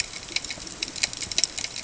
{"label": "ambient", "recorder": "HydroMoth"}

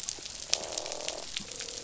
{"label": "biophony, croak", "recorder": "SoundTrap 500"}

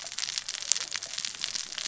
{"label": "biophony, cascading saw", "recorder": "SoundTrap 600 or HydroMoth"}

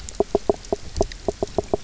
{"label": "biophony, knock croak", "recorder": "SoundTrap 300"}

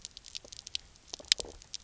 {"label": "biophony", "recorder": "SoundTrap 300"}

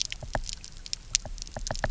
{"label": "biophony, knock", "recorder": "SoundTrap 300"}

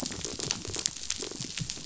{"label": "biophony, rattle response", "recorder": "SoundTrap 500"}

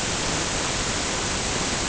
{"label": "ambient", "recorder": "HydroMoth"}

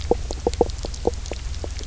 {"label": "biophony, knock croak", "recorder": "SoundTrap 300"}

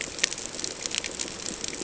{"label": "ambient", "recorder": "HydroMoth"}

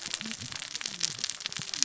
{"label": "biophony, cascading saw", "recorder": "SoundTrap 600 or HydroMoth"}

